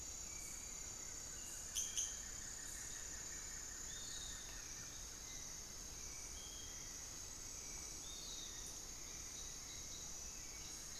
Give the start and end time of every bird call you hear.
[0.00, 11.00] Hauxwell's Thrush (Turdus hauxwelli)
[0.47, 5.26] Buff-throated Woodcreeper (Xiphorhynchus guttatus)
[3.67, 11.00] Piratic Flycatcher (Legatus leucophaius)
[10.27, 11.00] Cinnamon-throated Woodcreeper (Dendrexetastes rufigula)

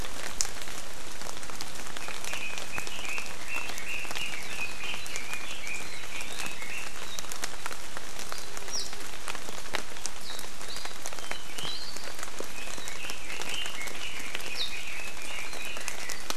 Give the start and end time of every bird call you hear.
[1.98, 6.98] Red-billed Leiothrix (Leiothrix lutea)
[8.68, 8.88] Warbling White-eye (Zosterops japonicus)
[11.48, 11.98] Warbling White-eye (Zosterops japonicus)
[12.48, 16.28] Red-billed Leiothrix (Leiothrix lutea)

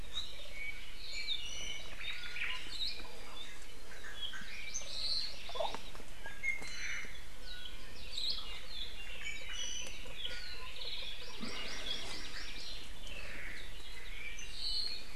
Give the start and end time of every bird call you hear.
[0.00, 1.40] Apapane (Himatione sanguinea)
[1.00, 1.90] Iiwi (Drepanis coccinea)
[1.90, 2.70] Omao (Myadestes obscurus)
[2.60, 3.00] Hawaii Akepa (Loxops coccineus)
[3.90, 5.40] Apapane (Himatione sanguinea)
[4.30, 6.00] Hawaii Amakihi (Chlorodrepanis virens)
[6.20, 7.20] Iiwi (Drepanis coccinea)
[6.60, 7.30] Omao (Myadestes obscurus)
[8.10, 8.40] Hawaii Akepa (Loxops coccineus)
[8.90, 10.00] Iiwi (Drepanis coccinea)
[10.90, 12.90] Hawaii Amakihi (Chlorodrepanis virens)
[12.90, 13.80] Omao (Myadestes obscurus)
[13.80, 15.10] Apapane (Himatione sanguinea)

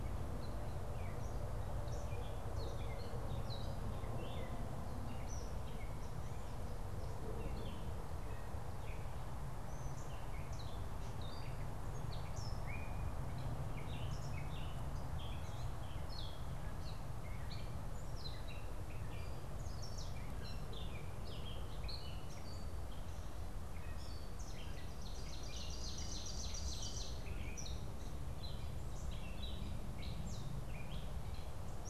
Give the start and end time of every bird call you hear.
[0.00, 31.85] Gray Catbird (Dumetella carolinensis)
[24.25, 27.55] Ovenbird (Seiurus aurocapilla)

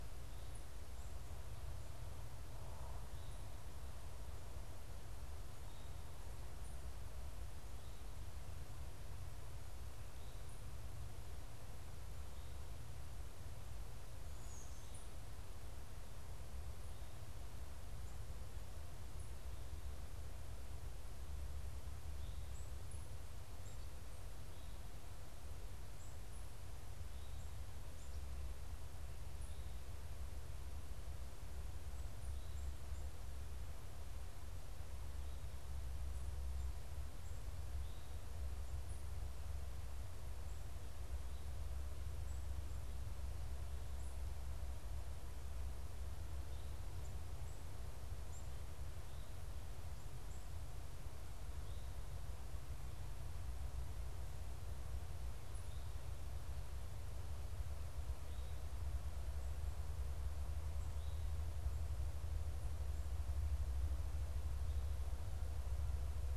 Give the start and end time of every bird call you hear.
[13.90, 15.40] Black-capped Chickadee (Poecile atricapillus)

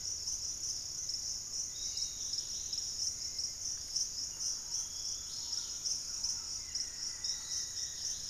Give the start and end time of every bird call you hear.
[0.00, 0.57] Fasciated Antshrike (Cymbilaimus lineatus)
[0.00, 8.29] Dusky-capped Greenlet (Pachysylvia hypoxantha)
[0.00, 8.29] Hauxwell's Thrush (Turdus hauxwelli)
[0.00, 8.29] Piratic Flycatcher (Legatus leucophaius)
[4.07, 7.97] Thrush-like Wren (Campylorhynchus turdinus)
[6.47, 8.29] Amazonian Barred-Woodcreeper (Dendrocolaptes certhia)

